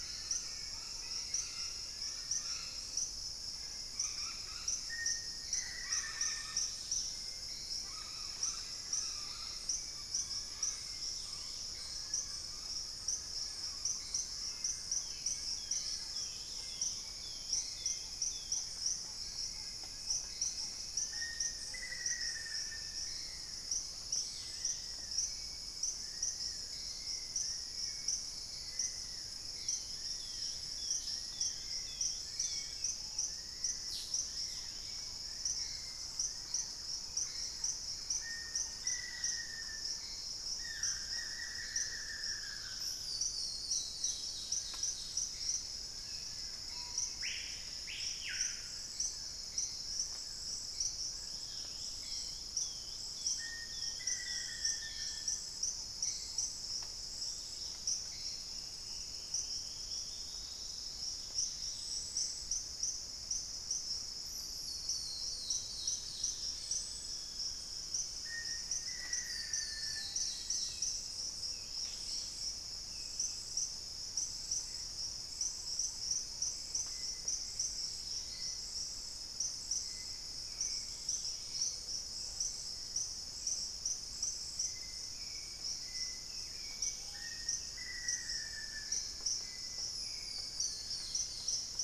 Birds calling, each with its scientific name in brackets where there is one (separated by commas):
Chestnut-winged Foliage-gleaner (Dendroma erythroptera), Dusky-throated Antshrike (Thamnomanes ardesiacus), Black-tailed Trogon (Trogon melanurus), Wing-barred Piprites (Piprites chloris), Hauxwell's Thrush (Turdus hauxwelli), Gray Antbird (Cercomacra cinerascens), unidentified bird, Screaming Piha (Lipaugus vociferans), Dusky-capped Greenlet (Pachysylvia hypoxantha), Long-winged Antwren (Myrmotherula longipennis), Black-capped Becard (Pachyramphus marginatus), Black-faced Antthrush (Formicarius analis), Thrush-like Wren (Campylorhynchus turdinus), Long-billed Woodcreeper (Nasica longirostris), Buff-throated Woodcreeper (Xiphorhynchus guttatus)